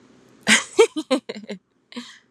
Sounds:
Laughter